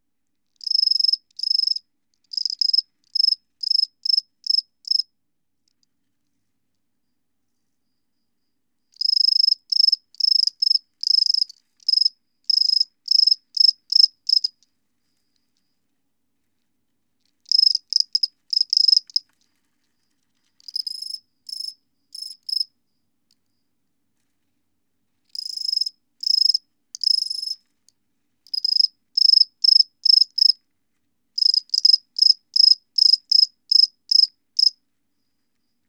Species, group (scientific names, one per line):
Gryllus bimaculatus
Orthoptera